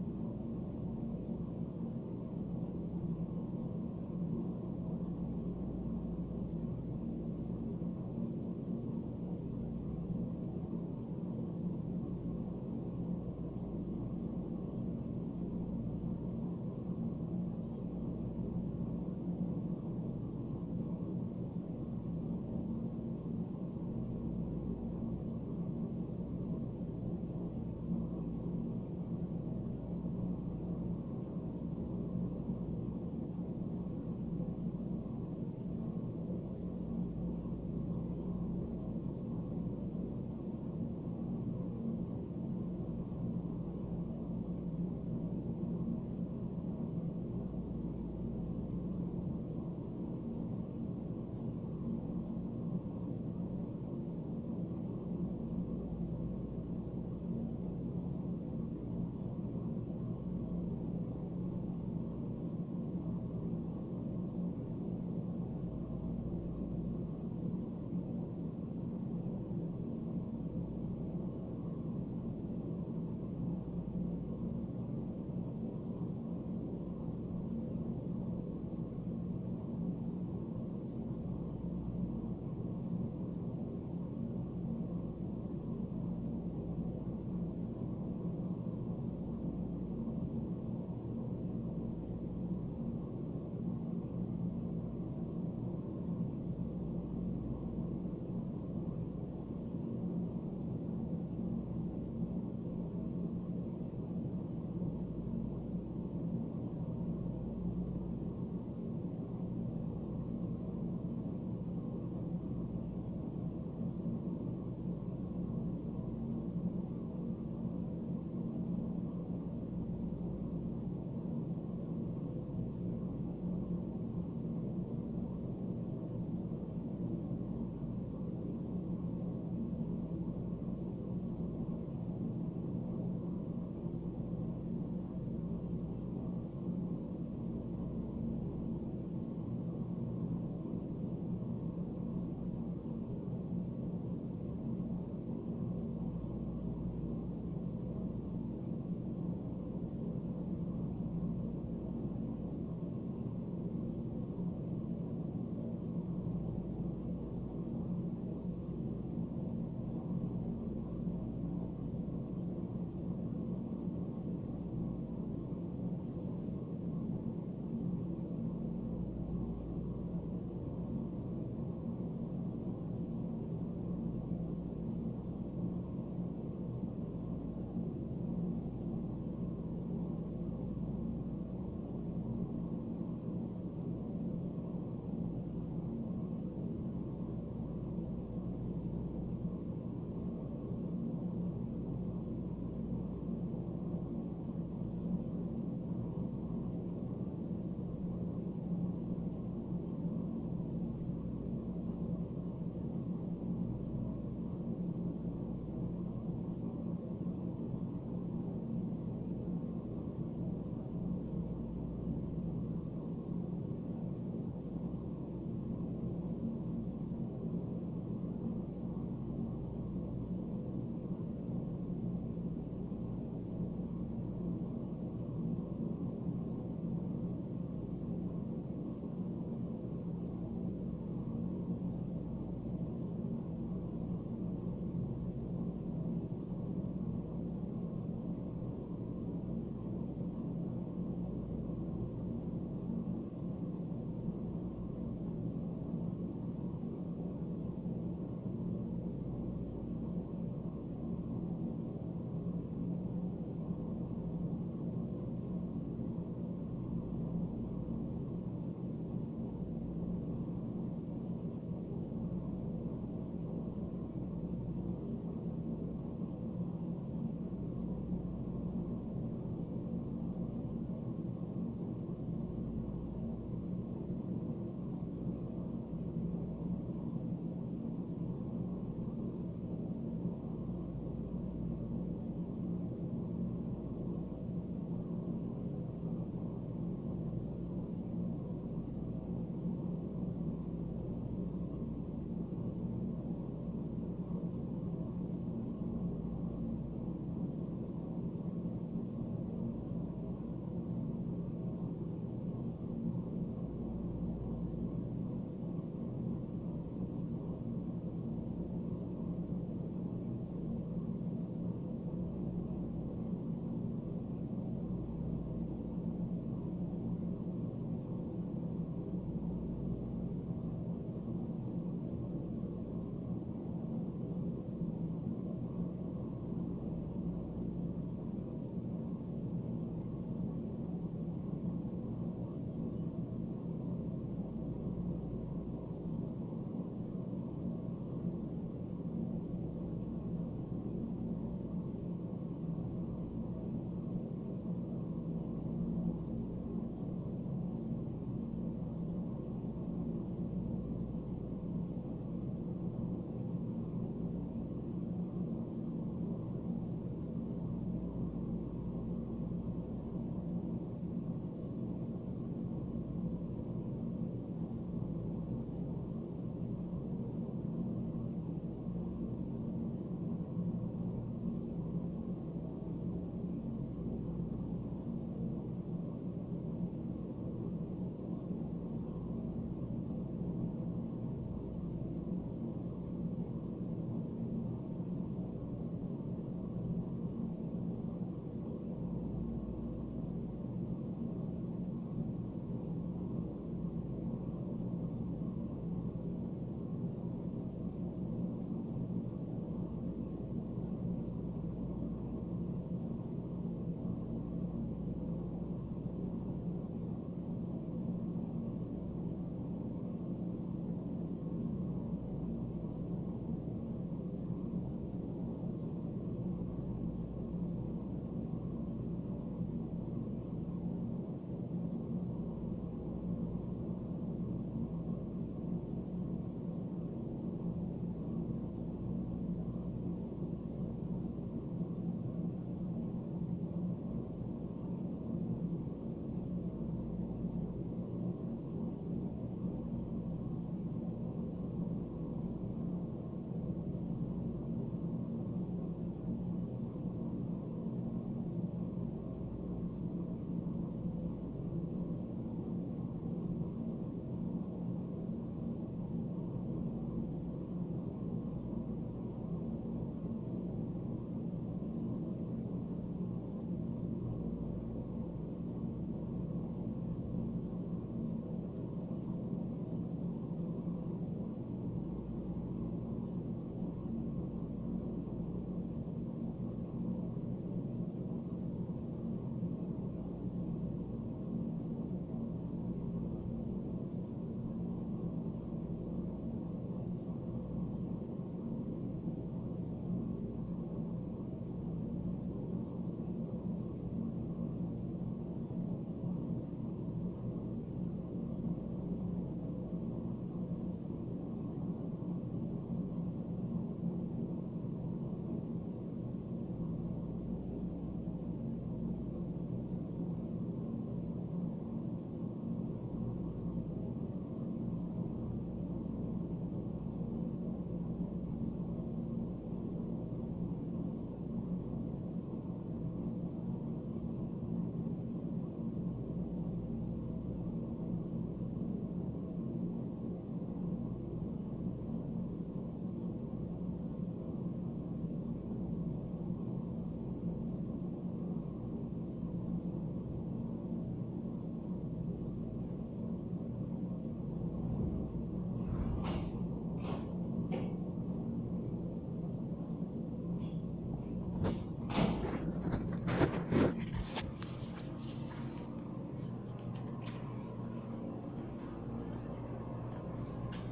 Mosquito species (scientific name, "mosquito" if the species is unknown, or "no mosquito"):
no mosquito